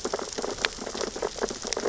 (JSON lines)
{"label": "biophony, sea urchins (Echinidae)", "recorder": "SoundTrap 600 or HydroMoth"}